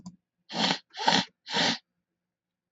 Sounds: Sniff